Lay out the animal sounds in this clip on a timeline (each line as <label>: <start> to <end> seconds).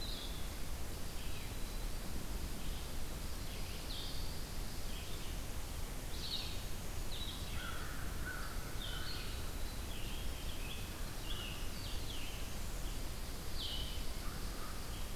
Blue-headed Vireo (Vireo solitarius): 0.0 to 6.5 seconds
Red-eyed Vireo (Vireo olivaceus): 0.0 to 15.2 seconds
Eastern Wood-Pewee (Contopus virens): 0.7 to 2.2 seconds
American Crow (Corvus brachyrhynchos): 7.5 to 9.3 seconds
Blue-headed Vireo (Vireo solitarius): 8.7 to 15.2 seconds
American Crow (Corvus brachyrhynchos): 14.2 to 15.2 seconds